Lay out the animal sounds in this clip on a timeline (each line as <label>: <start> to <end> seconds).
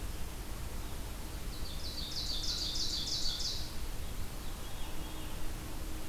Ovenbird (Seiurus aurocapilla): 1.3 to 3.8 seconds
Veery (Catharus fuscescens): 4.1 to 5.4 seconds